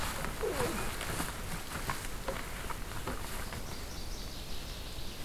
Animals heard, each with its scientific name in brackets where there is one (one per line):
Northern Waterthrush (Parkesia noveboracensis)